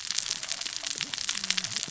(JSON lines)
{"label": "biophony, cascading saw", "recorder": "SoundTrap 600 or HydroMoth"}